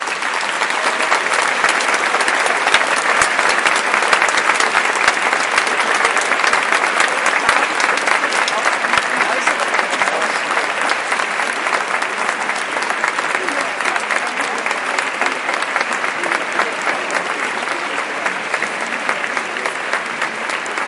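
0.0s A large crowd murmurs with overlapping voices. 20.9s
0.0s Strong applause ringing loudly and steadily. 20.9s

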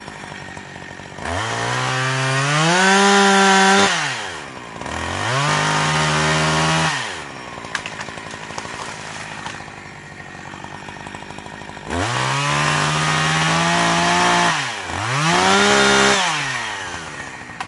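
0.1s A chainsaw is running nearby outdoors. 17.7s
1.2s A chainsaw is loudly cutting something nearby outdoors. 7.2s
12.3s A chainsaw is loudly cutting something nearby outdoors. 16.9s

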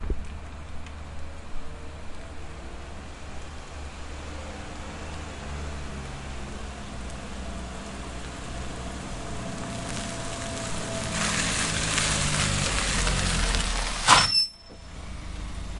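0.0s Light rain falling. 15.8s
0.0s A car is heard in the background. 10.6s
10.6s A car driving on a dirt road. 14.0s
14.1s A car stops suddenly. 14.4s

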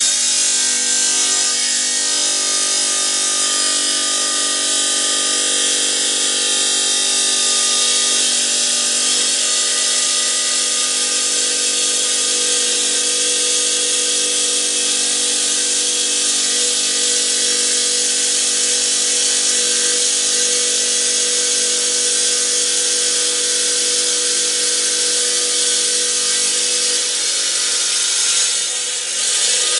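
0.0s A saw running continuously and loudly. 29.8s

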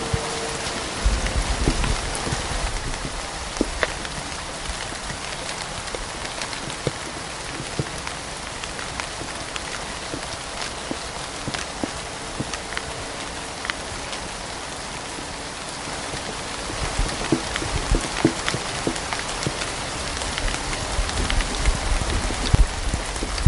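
0.0s Heavy rain falls. 23.4s
3.2s Solid clanking sounds indicating interaction with something hard and heavy. 6.0s
17.0s Solid clanking sounds indicating interaction with something hard and heavy. 20.1s

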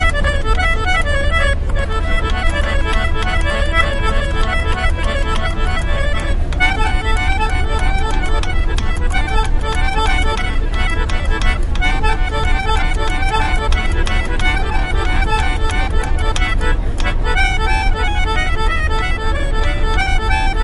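0.0s A fast-paced, rhythmic, and happy folk melody is being played on musical instruments outdoors. 20.6s

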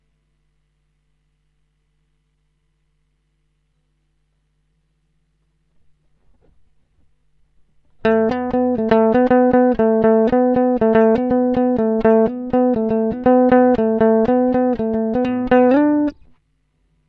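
0.0s White noise. 8.0s
5.9s Soft thumping. 7.1s
8.0s An acoustic guitar is being played. 16.2s
16.2s White noise. 17.1s

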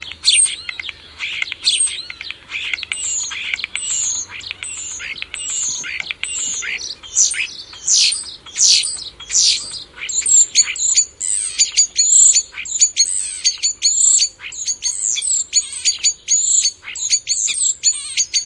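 0.0s Birds singing melodically outdoors. 18.5s

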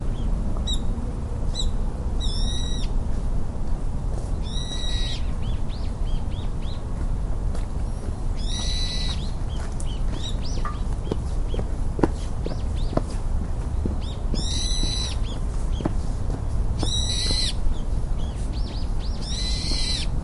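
0.0s A gentle wind is blowing. 20.2s
0.6s A bird chirps nearby. 0.8s
1.5s A bird chirps nearby. 1.7s
2.3s A bird is squawking. 2.9s
4.4s A bird is squawking. 5.3s
5.4s A bird is chirping in the distance. 6.8s
7.3s Nearby footsteps. 20.2s
8.3s A bird is squawking. 9.2s
9.2s A bird is chirping in the distance. 14.3s
10.5s A short metallic sound is heard. 10.8s
14.3s A bird is squawking. 15.2s
15.2s A bird is chirping in the distance. 15.9s
16.7s A bird is squawking. 17.6s
17.6s Multiple birds are chirping in the distance. 20.2s
19.3s A bird is squawking. 20.1s

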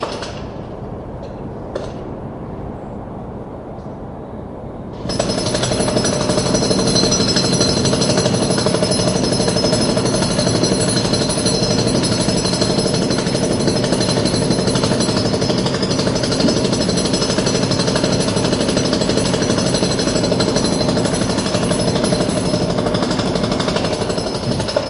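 4.9s A loud, repeated drilling sound of a concrete hammer at a distance. 24.9s

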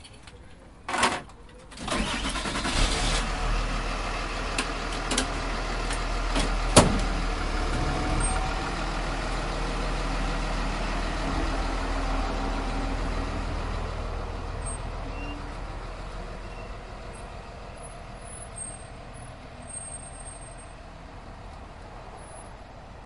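0.0s The engine of a truck starts. 7.0s
7.0s A delivery truck is driving away. 23.1s

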